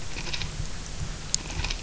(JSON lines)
{"label": "anthrophony, boat engine", "recorder": "SoundTrap 300"}